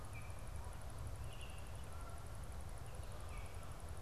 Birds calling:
Canada Goose (Branta canadensis), Baltimore Oriole (Icterus galbula)

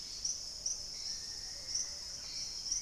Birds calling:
Plumbeous Pigeon (Patagioenas plumbea), Dusky-capped Greenlet (Pachysylvia hypoxantha), Hauxwell's Thrush (Turdus hauxwelli)

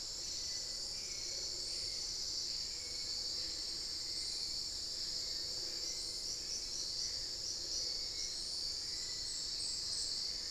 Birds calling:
Screaming Piha (Lipaugus vociferans), Hauxwell's Thrush (Turdus hauxwelli)

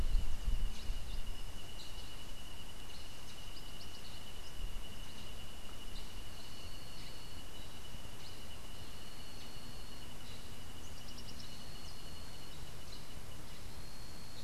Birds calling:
Black-headed Saltator (Saltator atriceps), Rufous-capped Warbler (Basileuterus rufifrons)

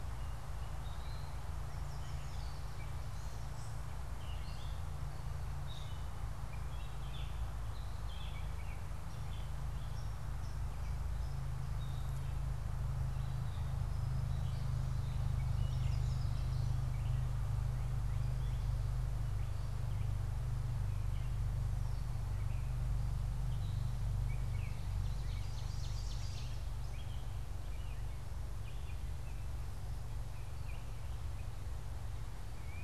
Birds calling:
Ovenbird (Seiurus aurocapilla), Gray Catbird (Dumetella carolinensis), Yellow Warbler (Setophaga petechia), Baltimore Oriole (Icterus galbula)

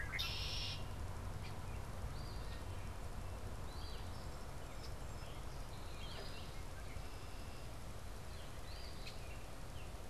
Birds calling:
Eastern Phoebe (Sayornis phoebe), Red-winged Blackbird (Agelaius phoeniceus)

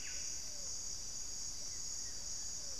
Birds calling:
Buff-breasted Wren (Cantorchilus leucotis), Pale-vented Pigeon (Patagioenas cayennensis), White-flanked Antwren (Myrmotherula axillaris)

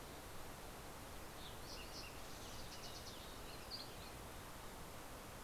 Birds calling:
Fox Sparrow (Passerella iliaca)

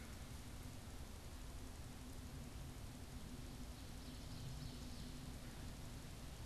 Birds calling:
Ovenbird (Seiurus aurocapilla)

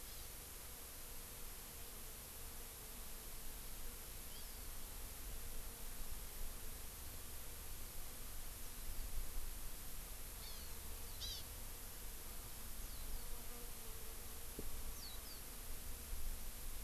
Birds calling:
Hawaii Amakihi (Chlorodrepanis virens), Warbling White-eye (Zosterops japonicus)

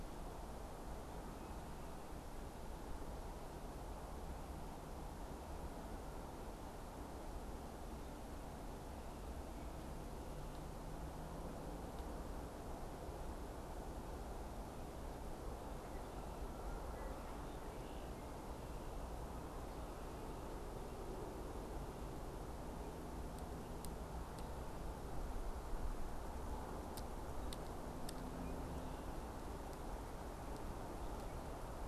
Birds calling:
Canada Goose (Branta canadensis), Red-winged Blackbird (Agelaius phoeniceus)

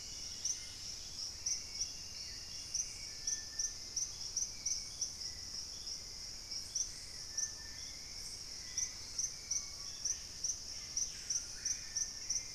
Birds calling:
Dusky-capped Greenlet (Pachysylvia hypoxantha), Purple-throated Fruitcrow (Querula purpurata), Hauxwell's Thrush (Turdus hauxwelli), Screaming Piha (Lipaugus vociferans)

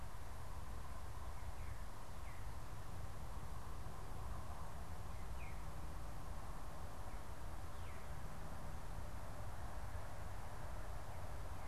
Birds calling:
Veery (Catharus fuscescens)

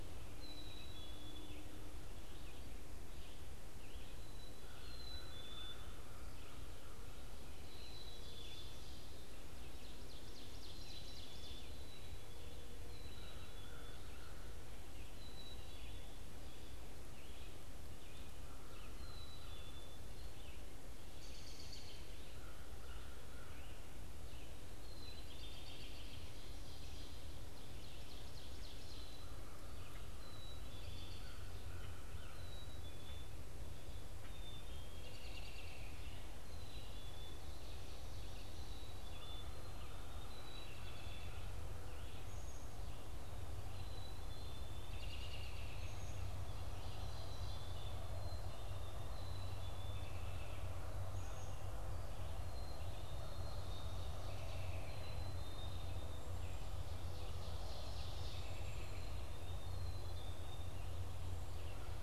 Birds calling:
Black-capped Chickadee (Poecile atricapillus), Red-eyed Vireo (Vireo olivaceus), American Crow (Corvus brachyrhynchos), Ovenbird (Seiurus aurocapilla), American Robin (Turdus migratorius)

